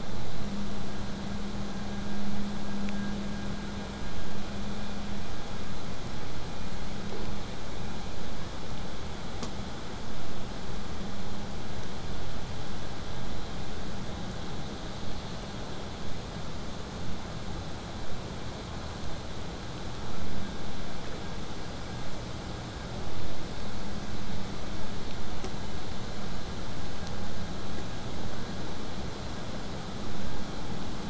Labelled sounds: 0.0	5.0	vessel noise, 0 to 8.0 kHz

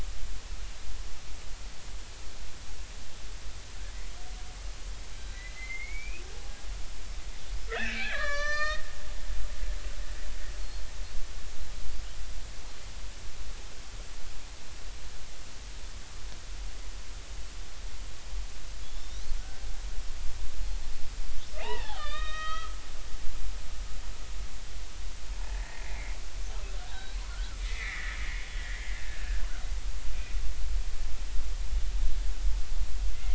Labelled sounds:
5.2	6.2	killer whale, Bigg's (transient), 1.5 to 4.0 kHz
7.7	8.9	killer whale, Bigg's (transient), 1.1 to 6.8 kHz
18.8	19.7	killer whale, Bigg's (transient), 1.4 to 4.1 kHz
21.6	22.8	killer whale, Bigg's (transient), 0.80 to 5.0 kHz
25.4	26.2	killer whale, Bigg's (transient), 1.6 to 2.5 kHz
26.9	29.0	killer whale, Bigg's (transient), 1.5 to 4.1 kHz

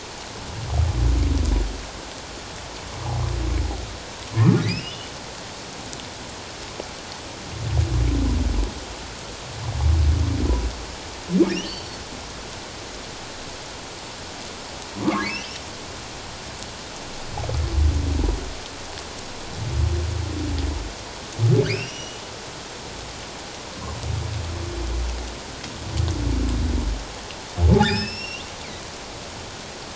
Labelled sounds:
4.3	5.1	humpback whale, 0.97 to 3.1 kHz
11.5	12.0	humpback whale, 2.4 to 4.6 kHz
15.2	15.5	humpback whale, 1.8 to 3.2 kHz
21.7	22.2	humpback whale, 2.0 to 5.9 kHz
27.6	28.4	humpback whale, 0.78 to 5.7 kHz

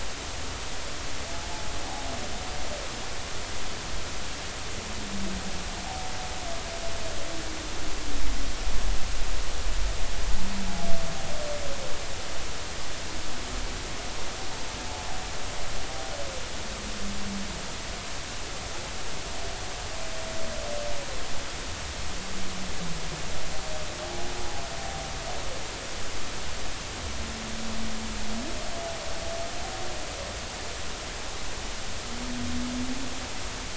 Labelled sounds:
24.0	24.3	humpback whale, 0.80 to 0.86 kHz

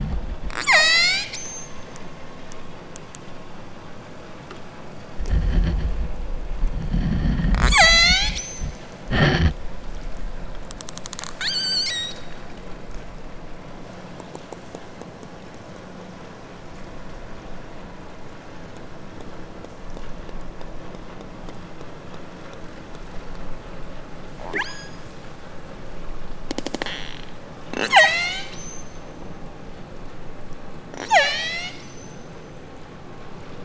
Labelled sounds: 0.6	1.9	killer whale, southern Alaska resident, 0.30 to 8.0 kHz
7.5	8.9	killer whale, southern Alaska resident, 0.37 to 8.0 kHz
11.2	12.3	killer whale, southern Alaska resident, 0.78 to 8.0 kHz
24.4	25.1	killer whale, southern Alaska resident, 0.17 to 8.0 kHz
26.5	27.2	killer whale, southern Alaska resident, 0.37 to 8.0 kHz
27.6	29.5	killer whale, southern Alaska resident, 0.17 to 8.0 kHz
30.9	32.9	killer whale, southern Alaska resident, 0.17 to 8.0 kHz

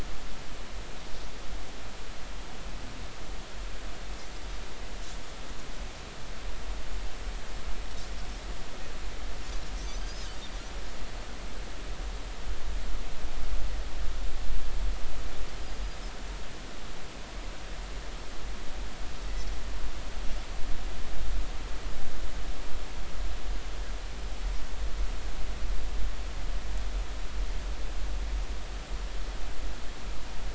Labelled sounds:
9.8	10.3	Pacific white-sided dolphin, 4.7 to 6.5 kHz
15.6	16.0	Pacific white-sided dolphin, 4.7 to 5.0 kHz

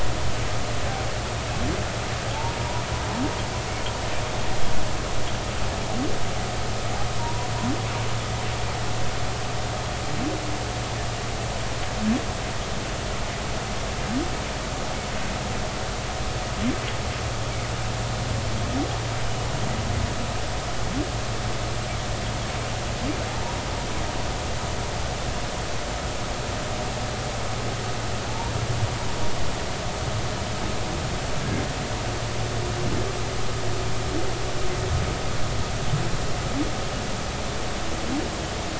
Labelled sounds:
7.2	7.5	humpback whale, 0.90 to 1.0 kHz
23.3	23.6	humpback whale, 0.80 to 0.99 kHz
28.3	28.5	humpback whale, 0.80 to 1.0 kHz

